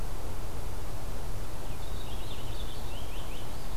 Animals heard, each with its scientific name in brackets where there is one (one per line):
Purple Finch (Haemorhous purpureus)